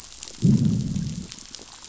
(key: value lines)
label: biophony, growl
recorder: SoundTrap 500